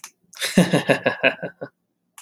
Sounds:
Laughter